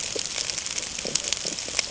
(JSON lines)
{"label": "ambient", "recorder": "HydroMoth"}